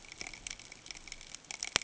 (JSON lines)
{"label": "ambient", "recorder": "HydroMoth"}